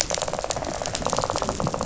{"label": "biophony, rattle", "recorder": "SoundTrap 500"}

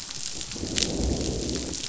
{"label": "biophony, growl", "recorder": "SoundTrap 500"}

